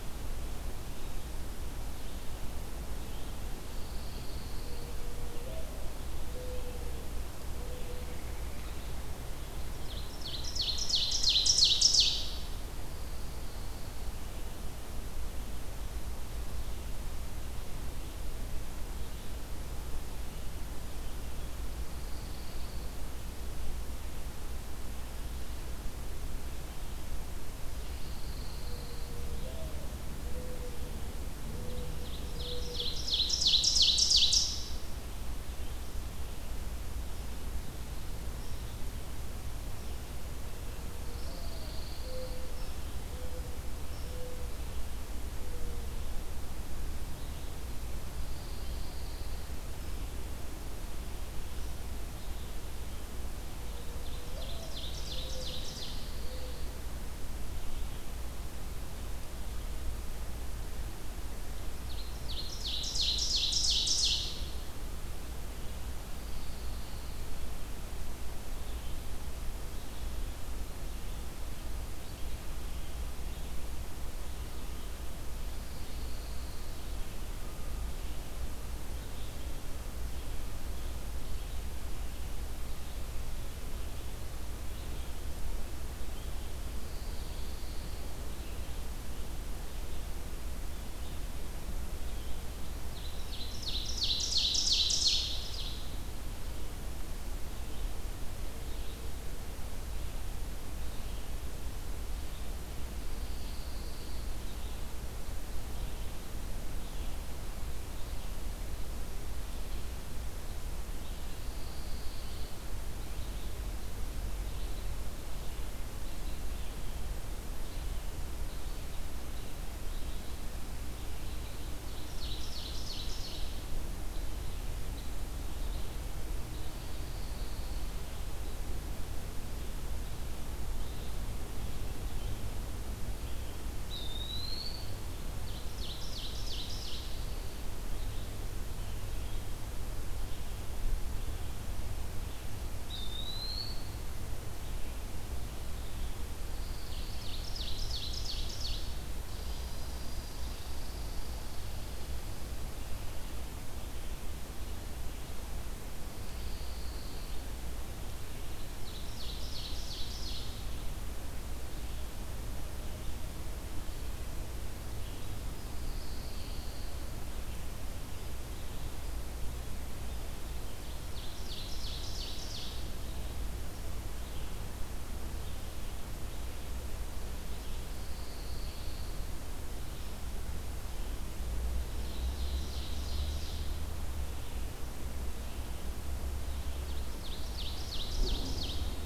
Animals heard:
Red Squirrel (Tamiasciurus hudsonicus)
Pine Warbler (Setophaga pinus)
Ovenbird (Seiurus aurocapilla)
Eastern Wood-Pewee (Contopus virens)
Red-eyed Vireo (Vireo olivaceus)
Mourning Dove (Zenaida macroura)

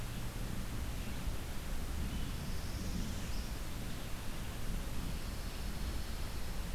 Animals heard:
Northern Parula (Setophaga americana)
Pine Warbler (Setophaga pinus)

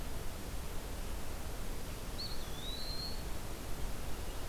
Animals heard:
Eastern Wood-Pewee (Contopus virens)
Black-throated Green Warbler (Setophaga virens)

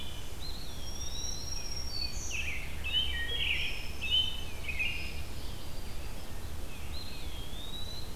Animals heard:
Tufted Titmouse (Baeolophus bicolor)
Winter Wren (Troglodytes hiemalis)
American Robin (Turdus migratorius)
Eastern Wood-Pewee (Contopus virens)
Black-throated Green Warbler (Setophaga virens)

